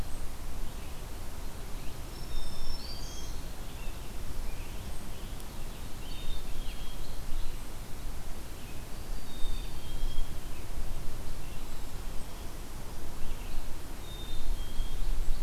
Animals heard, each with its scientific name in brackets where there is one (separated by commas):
Black-throated Green Warbler (Setophaga virens), Black-capped Chickadee (Poecile atricapillus), Scarlet Tanager (Piranga olivacea)